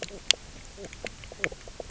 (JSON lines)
{"label": "biophony, knock croak", "recorder": "SoundTrap 300"}